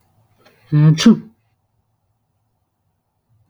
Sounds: Sneeze